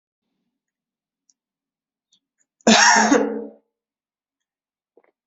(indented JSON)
{
  "expert_labels": [
    {
      "quality": "ok",
      "cough_type": "dry",
      "dyspnea": false,
      "wheezing": false,
      "stridor": false,
      "choking": false,
      "congestion": false,
      "nothing": true,
      "diagnosis": "obstructive lung disease",
      "severity": "unknown"
    }
  ]
}